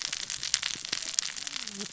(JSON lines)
{"label": "biophony, cascading saw", "recorder": "SoundTrap 600 or HydroMoth"}